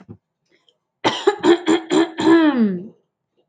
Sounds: Throat clearing